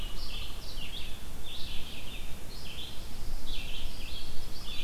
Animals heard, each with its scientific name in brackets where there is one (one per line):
Red-eyed Vireo (Vireo olivaceus)
Pileated Woodpecker (Dryocopus pileatus)
Chimney Swift (Chaetura pelagica)